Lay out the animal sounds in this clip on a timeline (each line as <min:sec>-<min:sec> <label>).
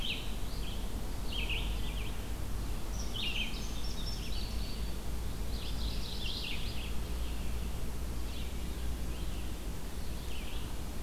0:00.0-0:11.0 Red-eyed Vireo (Vireo olivaceus)
0:03.2-0:05.0 Indigo Bunting (Passerina cyanea)
0:05.5-0:06.5 Mourning Warbler (Geothlypis philadelphia)